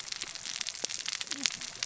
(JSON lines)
{"label": "biophony, cascading saw", "recorder": "SoundTrap 600 or HydroMoth"}